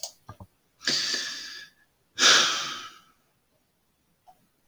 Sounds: Sigh